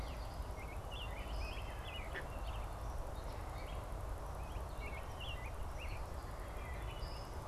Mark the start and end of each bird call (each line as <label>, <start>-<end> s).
Common Yellowthroat (Geothlypis trichas), 0.0-0.6 s
American Robin (Turdus migratorius), 0.0-7.4 s